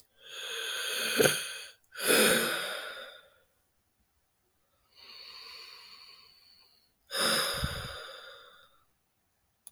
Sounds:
Sigh